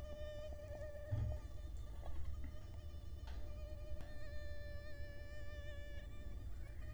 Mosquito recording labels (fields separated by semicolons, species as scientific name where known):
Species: Culex quinquefasciatus; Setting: cup